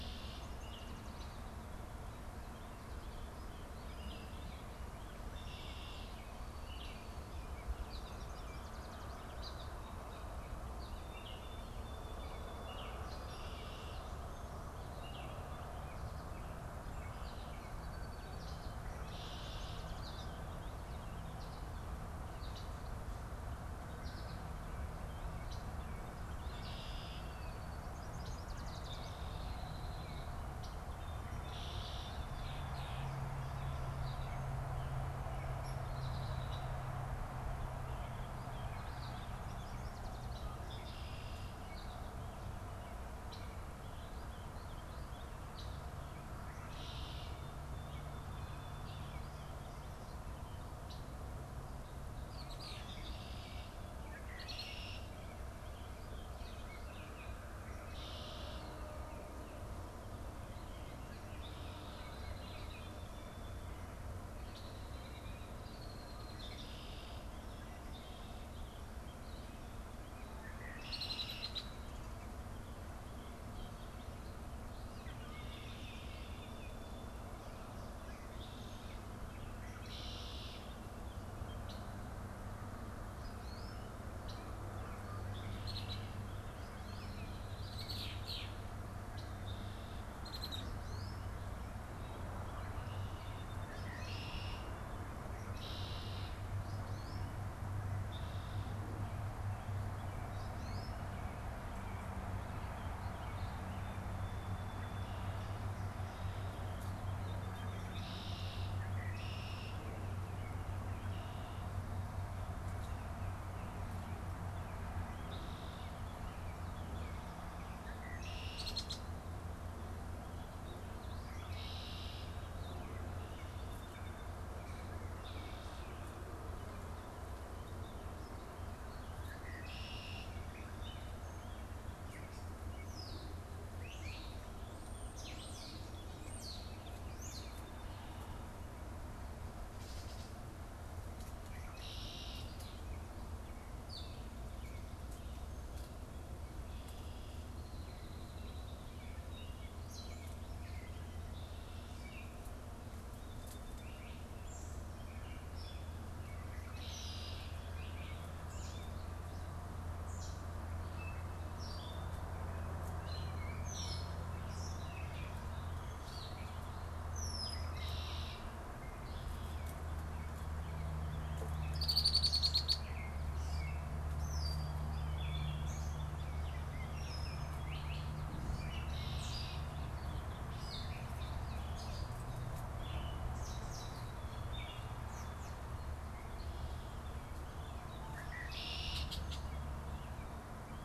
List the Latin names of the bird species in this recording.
Agelaius phoeniceus, Icterus galbula, Setophaga petechia, Dryobates villosus, Vireo gilvus, Melospiza melodia, Dumetella carolinensis, Sturnus vulgaris, unidentified bird